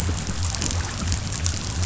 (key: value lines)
label: biophony
recorder: SoundTrap 500